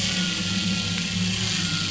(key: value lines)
label: anthrophony, boat engine
recorder: SoundTrap 500